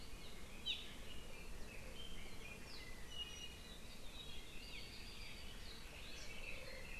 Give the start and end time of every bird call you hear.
[0.60, 0.80] Iiwi (Drepanis coccinea)
[2.40, 3.80] Iiwi (Drepanis coccinea)

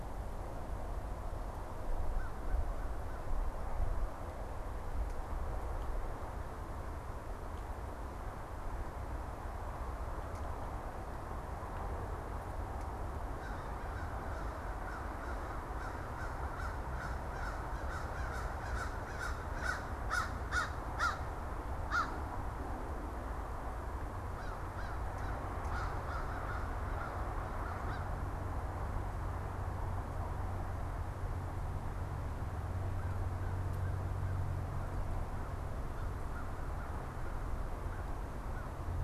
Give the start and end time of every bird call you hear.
[1.96, 5.05] American Crow (Corvus brachyrhynchos)
[12.96, 38.95] American Crow (Corvus brachyrhynchos)

